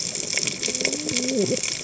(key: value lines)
label: biophony, cascading saw
recorder: HydroMoth